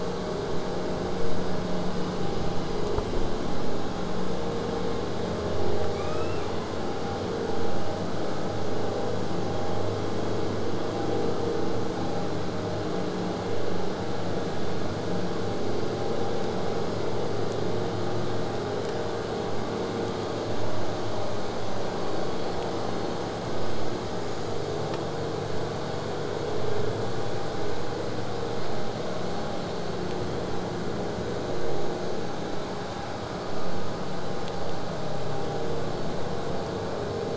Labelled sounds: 5.9	6.5	killer whale, southern resident, J pod, 1.0 to 8.0 kHz

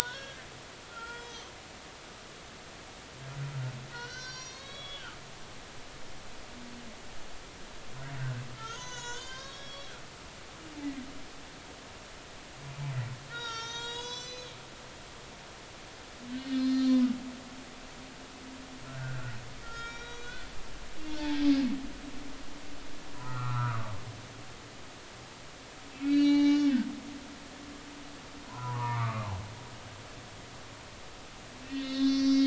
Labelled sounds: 0.0	0.5	humpback whale, 1.4 to 3.6 kHz
0.9	1.5	humpback whale, 1.3 to 6.2 kHz
3.9	5.2	humpback whale, 1.0 to 6.9 kHz
8.2	9.9	humpback whale, 0.90 to 7.3 kHz
13.3	14.5	humpback whale, 0.86 to 7.8 kHz
16.5	17.0	humpback whale, 4.1 to 5.8 kHz
18.9	20.5	humpback whale, 1.3 to 5.8 kHz
21.2	21.5	humpback whale, 3.4 to 3.6 kHz
23.2	23.9	humpback whale, 0.93 to 1.6 kHz
25.9	27.6	humpback whale, 0.80 to 4.6 kHz
28.4	29.3	humpback whale, 0.90 to 2.5 kHz
31.6	32.4	humpback whale, 1.8 to 6.0 kHz

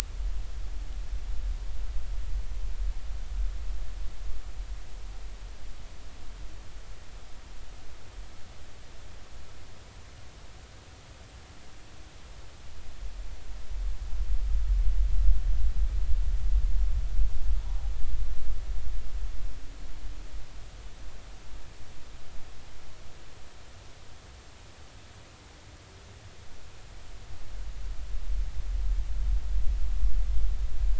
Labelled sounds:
17.6	17.9	humpback whale, 0.80 to 0.86 kHz

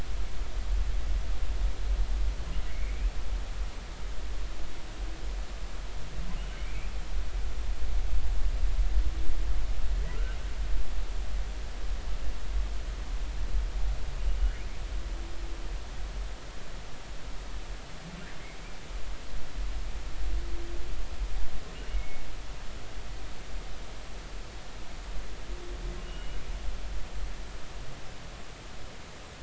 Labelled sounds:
2.7	3.1	humpback whale, 2.0 to 2.6 kHz
6.6	6.9	humpback whale, 2.1 to 2.6 kHz
21.9	22.2	humpback whale, 2.1 to 2.3 kHz
26.0	26.4	humpback whale, 2.8 to 2.9 kHz

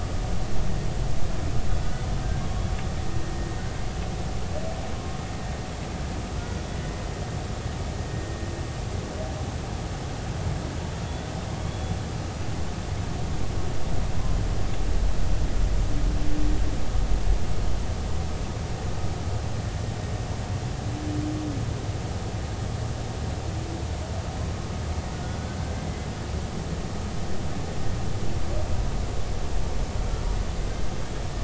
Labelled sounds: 2.4	2.6	humpback whale, 1.1 to 1.2 kHz
11.7	12.0	humpback whale, 3.3 to 3.5 kHz

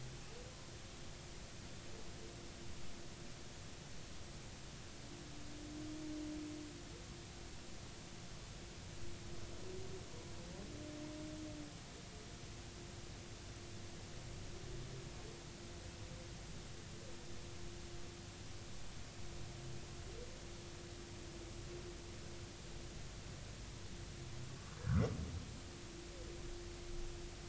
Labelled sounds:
24.8	25.0	humpback whale, 1.1 to 1.7 kHz

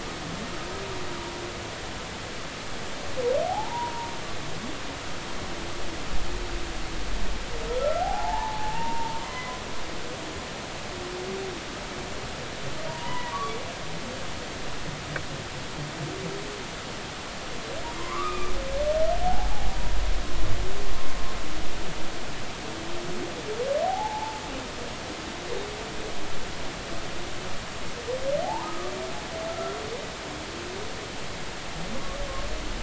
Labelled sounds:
3.5	4.1	humpback whale, 0.80 to 1.0 kHz
7.8	9.5	humpback whale, 0.80 to 3.1 kHz
12.9	13.4	humpback whale, 0.90 to 2.0 kHz
18.0	18.5	humpback whale, 0.96 to 2.5 kHz
19.2	19.8	humpback whale, 0.80 to 0.93 kHz
23.8	24.4	humpback whale, 0.80 to 0.96 kHz
28.4	28.9	humpback whale, 0.80 to 1.3 kHz
29.5	29.8	humpback whale, 1.3 to 1.4 kHz
32.0	32.2	humpback whale, 1.1 to 1.2 kHz

